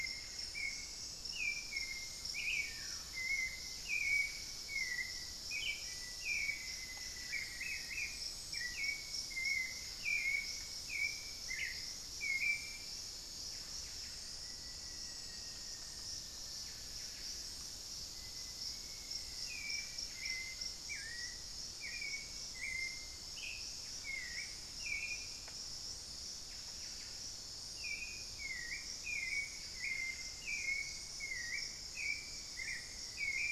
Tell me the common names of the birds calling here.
Buff-throated Woodcreeper, Hauxwell's Thrush, Buff-breasted Wren, unidentified bird, Black-faced Antthrush, Elegant Woodcreeper